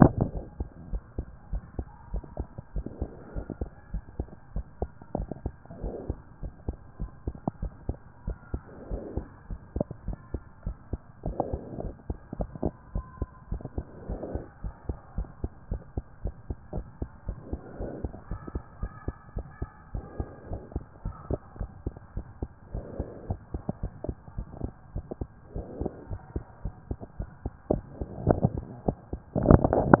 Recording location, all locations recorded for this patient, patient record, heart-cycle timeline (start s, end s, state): pulmonary valve (PV)
aortic valve (AV)+pulmonary valve (PV)+tricuspid valve (TV)+mitral valve (MV)
#Age: Child
#Sex: Male
#Height: 104.0 cm
#Weight: 23.0 kg
#Pregnancy status: False
#Murmur: Absent
#Murmur locations: nan
#Most audible location: nan
#Systolic murmur timing: nan
#Systolic murmur shape: nan
#Systolic murmur grading: nan
#Systolic murmur pitch: nan
#Systolic murmur quality: nan
#Diastolic murmur timing: nan
#Diastolic murmur shape: nan
#Diastolic murmur grading: nan
#Diastolic murmur pitch: nan
#Diastolic murmur quality: nan
#Outcome: Abnormal
#Campaign: 2014 screening campaign
0.00	0.41	unannotated
0.41	0.48	S1
0.48	0.56	systole
0.56	0.68	S2
0.68	0.90	diastole
0.90	1.02	S1
1.02	1.14	systole
1.14	1.26	S2
1.26	1.50	diastole
1.50	1.64	S1
1.64	1.76	systole
1.76	1.86	S2
1.86	2.10	diastole
2.10	2.24	S1
2.24	2.36	systole
2.36	2.50	S2
2.50	2.72	diastole
2.72	2.84	S1
2.84	2.98	systole
2.98	3.12	S2
3.12	3.34	diastole
3.34	3.44	S1
3.44	3.58	systole
3.58	3.72	S2
3.72	3.92	diastole
3.92	4.02	S1
4.02	4.16	systole
4.16	4.30	S2
4.30	4.52	diastole
4.52	4.66	S1
4.66	4.78	systole
4.78	4.90	S2
4.90	5.14	diastole
5.14	5.30	S1
5.30	5.42	systole
5.42	5.56	S2
5.56	5.82	diastole
5.82	5.94	S1
5.94	6.06	systole
6.06	6.20	S2
6.20	6.42	diastole
6.42	6.52	S1
6.52	6.66	systole
6.66	6.76	S2
6.76	6.98	diastole
6.98	7.10	S1
7.10	7.24	systole
7.24	7.36	S2
7.36	7.60	diastole
7.60	7.72	S1
7.72	7.86	systole
7.86	8.00	S2
8.00	8.24	diastole
8.24	8.38	S1
8.38	8.50	systole
8.50	8.64	S2
8.64	8.90	diastole
8.90	9.04	S1
9.04	9.14	systole
9.14	9.28	S2
9.28	9.48	diastole
9.48	9.60	S1
9.60	9.72	systole
9.72	9.88	S2
9.88	10.06	diastole
10.06	10.18	S1
10.18	10.30	systole
10.30	10.42	S2
10.42	10.64	diastole
10.64	10.78	S1
10.78	10.90	systole
10.90	11.04	S2
11.04	11.24	diastole
11.24	11.38	S1
11.38	11.50	systole
11.50	11.60	S2
11.60	11.78	diastole
11.78	11.92	S1
11.92	12.06	systole
12.06	12.16	S2
12.16	12.38	diastole
12.38	12.52	S1
12.52	12.62	systole
12.62	12.72	S2
12.72	12.92	diastole
12.92	13.06	S1
13.06	13.18	systole
13.18	13.30	S2
13.30	13.50	diastole
13.50	13.62	S1
13.62	13.74	systole
13.74	13.86	S2
13.86	14.06	diastole
14.06	14.20	S1
14.20	14.32	systole
14.32	14.42	S2
14.42	14.62	diastole
14.62	14.74	S1
14.74	14.86	systole
14.86	15.00	S2
15.00	15.16	diastole
15.16	15.28	S1
15.28	15.40	systole
15.40	15.52	S2
15.52	15.68	diastole
15.68	15.82	S1
15.82	15.94	systole
15.94	16.04	S2
16.04	16.22	diastole
16.22	16.32	S1
16.32	16.48	systole
16.48	16.58	S2
16.58	16.74	diastole
16.74	16.88	S1
16.88	16.98	systole
16.98	17.10	S2
17.10	17.26	diastole
17.26	17.36	S1
17.36	17.46	systole
17.46	17.60	S2
17.60	17.78	diastole
17.78	17.92	S1
17.92	18.02	systole
18.02	18.12	S2
18.12	18.28	diastole
18.28	18.40	S1
18.40	18.52	systole
18.52	18.62	S2
18.62	18.80	diastole
18.80	18.90	S1
18.90	19.06	systole
19.06	19.16	S2
19.16	19.34	diastole
19.34	19.44	S1
19.44	19.60	systole
19.60	19.70	S2
19.70	19.92	diastole
19.92	20.02	S1
20.02	20.16	systole
20.16	20.28	S2
20.28	20.48	diastole
20.48	20.60	S1
20.60	20.72	systole
20.72	20.84	S2
20.84	21.04	diastole
21.04	21.14	S1
21.14	21.28	systole
21.28	21.42	S2
21.42	21.58	diastole
21.58	21.68	S1
21.68	21.84	systole
21.84	21.94	S2
21.94	22.14	diastole
22.14	22.24	S1
22.24	22.40	systole
22.40	22.50	S2
22.50	22.72	diastole
22.72	22.86	S1
22.86	22.98	systole
22.98	23.08	S2
23.08	23.26	diastole
23.26	23.38	S1
23.38	23.52	systole
23.52	23.62	S2
23.62	23.80	diastole
23.80	23.92	S1
23.92	24.06	systole
24.06	24.16	S2
24.16	24.36	diastole
24.36	24.48	S1
24.48	24.62	systole
24.62	24.72	S2
24.72	24.94	diastole
24.94	25.06	S1
25.06	25.18	systole
25.18	25.28	S2
25.28	25.52	diastole
25.52	25.66	S1
25.66	25.78	systole
25.78	25.90	S2
25.90	26.08	diastole
26.08	26.20	S1
26.20	26.34	systole
26.34	26.44	S2
26.44	26.64	diastole
26.64	26.74	S1
26.74	26.88	systole
26.88	26.98	S2
26.98	27.18	diastole
27.18	27.28	S1
27.28	27.44	systole
27.44	27.54	S2
27.54	27.74	diastole
27.74	27.86	S1
27.86	28.00	systole
28.00	28.10	S2
28.10	28.26	diastole
28.26	28.42	S1
28.42	28.56	systole
28.56	28.66	S2
28.66	28.86	diastole
28.86	28.96	S1
28.96	29.12	systole
29.12	29.22	S2
29.22	29.26	diastole
29.26	30.00	unannotated